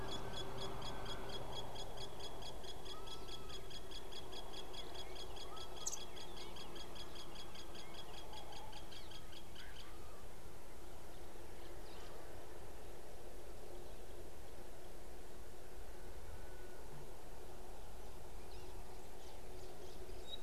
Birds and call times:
Nubian Woodpecker (Campethera nubica): 0:04.6

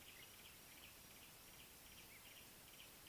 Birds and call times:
Yellow-breasted Apalis (Apalis flavida): 0:01.8

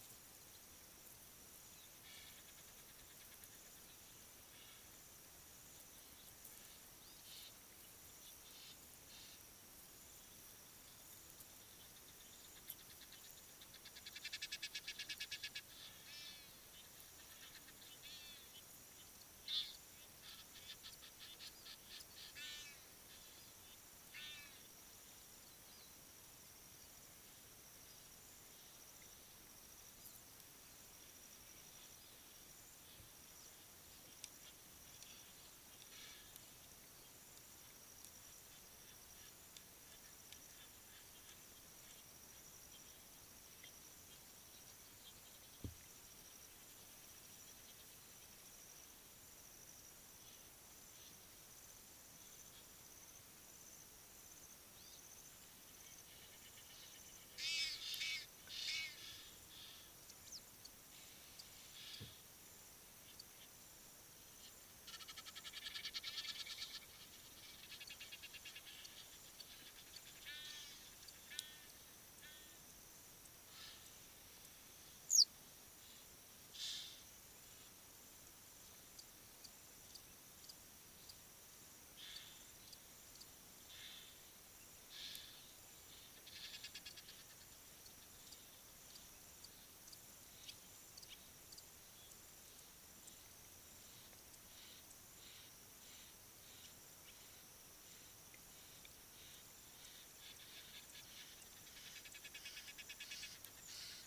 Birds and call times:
Egyptian Goose (Alopochen aegyptiaca): 0:02.3, 0:14.7, 0:19.6, 0:24.3, 0:36.2, 0:58.1, 1:05.9, 1:10.4, 1:16.7, 1:26.7, 1:42.6
Western Yellow Wagtail (Motacilla flava): 1:15.2

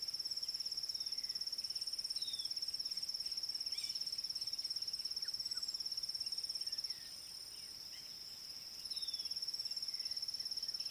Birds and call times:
Pale White-eye (Zosterops flavilateralis): 0:02.2

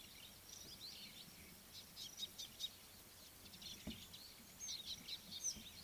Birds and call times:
Scarlet-chested Sunbird (Chalcomitra senegalensis): 0:02.4

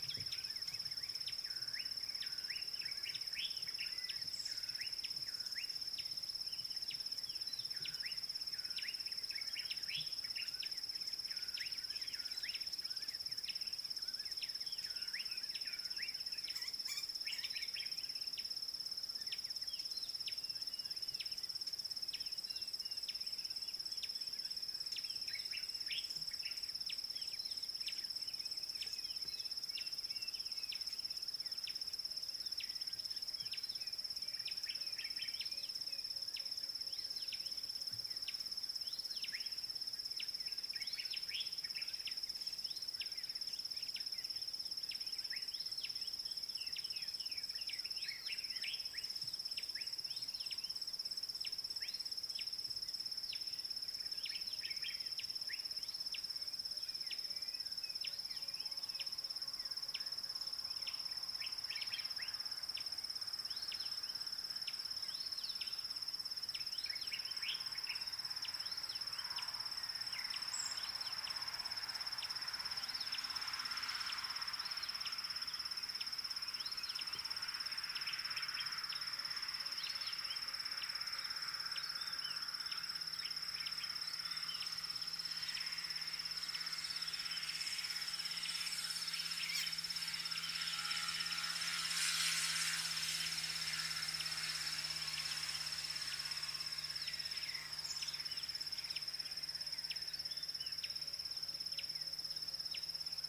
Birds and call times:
Slate-colored Boubou (Laniarius funebris): 0:01.8
Gray Wren-Warbler (Calamonastes simplex): 0:06.0, 0:31.7, 1:02.8, 1:41.8
White-rumped Shrike (Eurocephalus ruppelli): 0:17.0
Klaas's Cuckoo (Chrysococcyx klaas): 0:35.6, 0:57.5
White Helmetshrike (Prionops plumatus): 0:48.1
Common Bulbul (Pycnonotus barbatus): 1:07.5

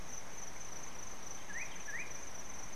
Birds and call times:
Slate-colored Boubou (Laniarius funebris): 0:01.6

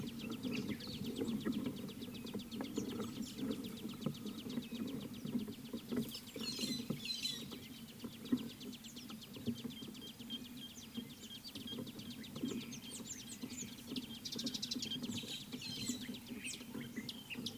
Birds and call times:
White-headed Buffalo-Weaver (Dinemellia dinemelli): 0:06.7, 0:15.8
Nubian Woodpecker (Campethera nubica): 0:10.4
Speckled Mousebird (Colius striatus): 0:13.2, 0:16.6
Mariqua Sunbird (Cinnyris mariquensis): 0:14.7

